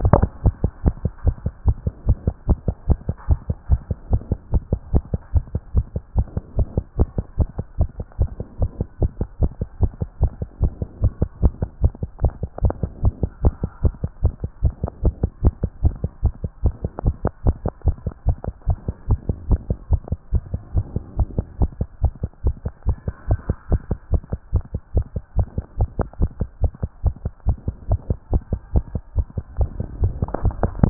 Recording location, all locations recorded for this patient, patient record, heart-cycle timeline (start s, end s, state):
tricuspid valve (TV)
aortic valve (AV)+pulmonary valve (PV)+tricuspid valve (TV)+mitral valve (MV)
#Age: Child
#Sex: Male
#Height: 124.0 cm
#Weight: 21.3 kg
#Pregnancy status: False
#Murmur: Absent
#Murmur locations: nan
#Most audible location: nan
#Systolic murmur timing: nan
#Systolic murmur shape: nan
#Systolic murmur grading: nan
#Systolic murmur pitch: nan
#Systolic murmur quality: nan
#Diastolic murmur timing: nan
#Diastolic murmur shape: nan
#Diastolic murmur grading: nan
#Diastolic murmur pitch: nan
#Diastolic murmur quality: nan
#Outcome: Abnormal
#Campaign: 2014 screening campaign
0.00	0.36	unannotated
0.36	0.44	diastole
0.44	0.54	S1
0.54	0.62	systole
0.62	0.70	S2
0.70	0.84	diastole
0.84	0.94	S1
0.94	1.04	systole
1.04	1.12	S2
1.12	1.24	diastole
1.24	1.36	S1
1.36	1.44	systole
1.44	1.52	S2
1.52	1.66	diastole
1.66	1.76	S1
1.76	1.84	systole
1.84	1.92	S2
1.92	2.06	diastole
2.06	2.18	S1
2.18	2.26	systole
2.26	2.34	S2
2.34	2.48	diastole
2.48	2.58	S1
2.58	2.66	systole
2.66	2.74	S2
2.74	2.88	diastole
2.88	2.98	S1
2.98	3.08	systole
3.08	3.16	S2
3.16	3.28	diastole
3.28	3.38	S1
3.38	3.48	systole
3.48	3.56	S2
3.56	3.70	diastole
3.70	3.80	S1
3.80	3.88	systole
3.88	3.96	S2
3.96	4.10	diastole
4.10	4.22	S1
4.22	4.30	systole
4.30	4.38	S2
4.38	4.52	diastole
4.52	4.62	S1
4.62	4.70	systole
4.70	4.80	S2
4.80	4.92	diastole
4.92	5.02	S1
5.02	5.12	systole
5.12	5.20	S2
5.20	5.34	diastole
5.34	5.44	S1
5.44	5.52	systole
5.52	5.60	S2
5.60	5.74	diastole
5.74	5.86	S1
5.86	5.94	systole
5.94	6.02	S2
6.02	6.16	diastole
6.16	6.26	S1
6.26	6.34	systole
6.34	6.42	S2
6.42	6.56	diastole
6.56	6.66	S1
6.66	6.76	systole
6.76	6.84	S2
6.84	6.98	diastole
6.98	7.08	S1
7.08	7.16	systole
7.16	7.24	S2
7.24	7.38	diastole
7.38	7.48	S1
7.48	7.56	systole
7.56	7.64	S2
7.64	7.78	diastole
7.78	7.88	S1
7.88	7.98	systole
7.98	8.06	S2
8.06	8.20	diastole
8.20	8.30	S1
8.30	8.38	systole
8.38	8.46	S2
8.46	8.60	diastole
8.60	8.70	S1
8.70	8.78	systole
8.78	8.86	S2
8.86	9.00	diastole
9.00	9.10	S1
9.10	9.20	systole
9.20	9.28	S2
9.28	9.40	diastole
9.40	9.50	S1
9.50	9.60	systole
9.60	9.68	S2
9.68	9.80	diastole
9.80	9.92	S1
9.92	10.00	systole
10.00	10.08	S2
10.08	10.20	diastole
10.20	10.32	S1
10.32	10.40	systole
10.40	10.48	S2
10.48	10.62	diastole
10.62	10.72	S1
10.72	10.80	systole
10.80	10.88	S2
10.88	11.02	diastole
11.02	11.12	S1
11.12	11.20	systole
11.20	11.28	S2
11.28	11.42	diastole
11.42	11.52	S1
11.52	11.60	systole
11.60	11.68	S2
11.68	11.82	diastole
11.82	11.92	S1
11.92	12.00	systole
12.00	12.08	S2
12.08	12.22	diastole
12.22	12.32	S1
12.32	12.40	systole
12.40	12.48	S2
12.48	12.62	diastole
12.62	12.74	S1
12.74	12.82	systole
12.82	12.90	S2
12.90	13.02	diastole
13.02	13.12	S1
13.12	13.22	systole
13.22	13.30	S2
13.30	13.42	diastole
13.42	13.54	S1
13.54	13.62	systole
13.62	13.70	S2
13.70	13.82	diastole
13.82	13.94	S1
13.94	14.02	systole
14.02	14.10	S2
14.10	14.22	diastole
14.22	14.34	S1
14.34	14.42	systole
14.42	14.50	S2
14.50	14.62	diastole
14.62	14.74	S1
14.74	14.82	systole
14.82	14.90	S2
14.90	15.04	diastole
15.04	15.14	S1
15.14	15.22	systole
15.22	15.30	S2
15.30	15.42	diastole
15.42	15.54	S1
15.54	15.62	systole
15.62	15.70	S2
15.70	15.82	diastole
15.82	15.94	S1
15.94	16.02	systole
16.02	16.10	S2
16.10	16.24	diastole
16.24	16.34	S1
16.34	16.42	systole
16.42	16.50	S2
16.50	16.64	diastole
16.64	16.74	S1
16.74	16.82	systole
16.82	16.90	S2
16.90	17.04	diastole
17.04	17.14	S1
17.14	17.24	systole
17.24	17.32	S2
17.32	17.44	diastole
17.44	17.56	S1
17.56	17.64	systole
17.64	17.72	S2
17.72	17.86	diastole
17.86	17.96	S1
17.96	18.04	systole
18.04	18.12	S2
18.12	18.26	diastole
18.26	18.36	S1
18.36	18.46	systole
18.46	18.54	S2
18.54	18.68	diastole
18.68	18.78	S1
18.78	18.86	systole
18.86	18.94	S2
18.94	19.08	diastole
19.08	19.18	S1
19.18	19.28	systole
19.28	19.36	S2
19.36	19.48	diastole
19.48	19.60	S1
19.60	19.68	systole
19.68	19.78	S2
19.78	19.90	diastole
19.90	20.00	S1
20.00	20.10	systole
20.10	20.18	S2
20.18	20.32	diastole
20.32	20.42	S1
20.42	20.52	systole
20.52	20.60	S2
20.60	20.74	diastole
20.74	20.84	S1
20.84	20.94	systole
20.94	21.02	S2
21.02	21.18	diastole
21.18	21.28	S1
21.28	21.36	systole
21.36	21.46	S2
21.46	21.60	diastole
21.60	21.70	S1
21.70	21.80	systole
21.80	21.88	S2
21.88	22.02	diastole
22.02	22.12	S1
22.12	22.22	systole
22.22	22.30	S2
22.30	22.44	diastole
22.44	22.54	S1
22.54	22.64	systole
22.64	22.72	S2
22.72	22.86	diastole
22.86	22.96	S1
22.96	23.06	systole
23.06	23.14	S2
23.14	23.28	diastole
23.28	23.40	S1
23.40	23.48	systole
23.48	23.56	S2
23.56	23.70	diastole
23.70	23.80	S1
23.80	23.90	systole
23.90	23.98	S2
23.98	24.12	diastole
24.12	24.22	S1
24.22	24.30	systole
24.30	24.38	S2
24.38	24.54	diastole
24.54	24.64	S1
24.64	24.72	systole
24.72	24.80	S2
24.80	24.94	diastole
24.94	25.06	S1
25.06	25.14	systole
25.14	25.22	S2
25.22	25.36	diastole
25.36	25.46	S1
25.46	25.56	systole
25.56	25.64	S2
25.64	25.78	diastole
25.78	25.88	S1
25.88	25.98	systole
25.98	26.06	S2
26.06	26.20	diastole
26.20	26.30	S1
26.30	26.40	systole
26.40	26.48	S2
26.48	26.62	diastole
26.62	26.72	S1
26.72	26.82	systole
26.82	26.90	S2
26.90	27.04	diastole
27.04	27.14	S1
27.14	27.24	systole
27.24	27.32	S2
27.32	27.46	diastole
27.46	27.56	S1
27.56	27.66	systole
27.66	27.74	S2
27.74	27.90	diastole
27.90	28.00	S1
28.00	28.08	systole
28.08	28.18	S2
28.18	28.32	diastole
28.32	28.42	S1
28.42	28.52	systole
28.52	28.60	S2
28.60	28.74	diastole
28.74	28.84	S1
28.84	28.94	systole
28.94	29.02	S2
29.02	29.16	diastole
29.16	29.26	S1
29.26	29.36	systole
29.36	29.44	S2
29.44	29.58	diastole
29.58	29.70	S1
29.70	29.78	systole
29.78	29.86	S2
29.86	30.00	diastole
30.00	30.12	S1
30.12	30.22	systole
30.22	30.30	S2
30.30	30.44	diastole
30.44	30.90	unannotated